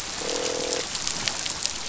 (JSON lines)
{"label": "biophony, croak", "recorder": "SoundTrap 500"}